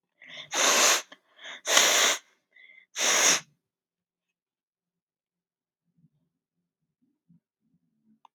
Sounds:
Sneeze